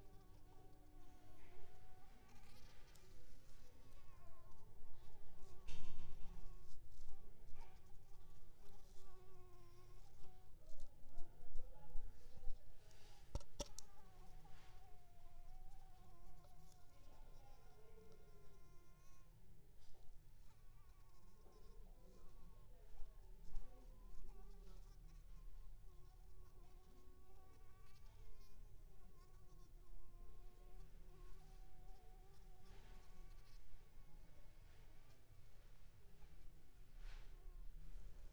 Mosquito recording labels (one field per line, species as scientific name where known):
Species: Anopheles coustani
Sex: female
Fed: unfed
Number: one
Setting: cup